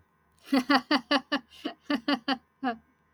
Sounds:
Laughter